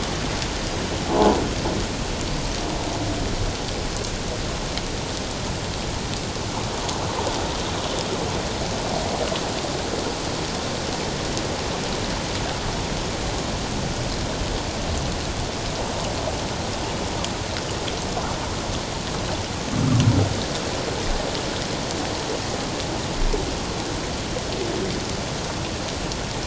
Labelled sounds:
1.1	1.4	humpback whale, 0.81 to 1.1 kHz

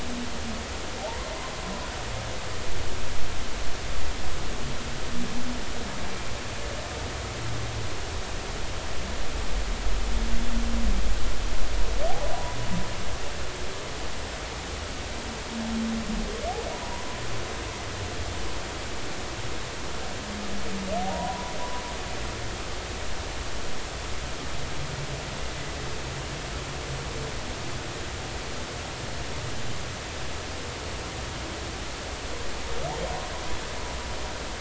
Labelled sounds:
1.0	1.3	humpback whale, 0.80 to 1.1 kHz
16.7	17.2	humpback whale, 0.93 to 1.1 kHz
21.1	21.5	humpback whale, 0.90 to 1.0 kHz

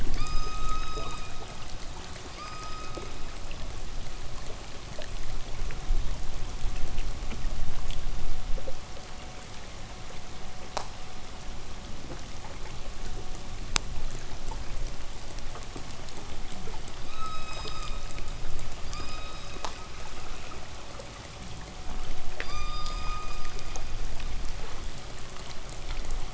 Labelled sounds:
0.0	3.6	killer whale, K pod, call S16, 0.87 to 8.0 kHz
16.9	20.4	killer whale, K pod, call S16, 0.89 to 8.0 kHz
22.3	24.2	killer whale, K pod, call S16, 0.85 to 8.0 kHz

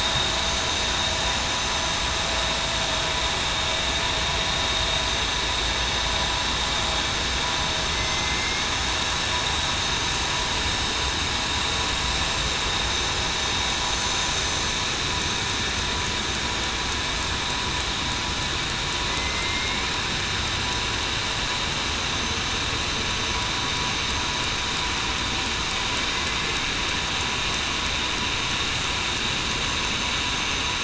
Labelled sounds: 7.9	8.7	killer whale, southern resident, 2.0 to 2.2 kHz
19.1	19.8	killer whale, southern resident, 2.0 to 2.3 kHz

